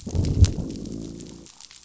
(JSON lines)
{"label": "biophony, growl", "recorder": "SoundTrap 500"}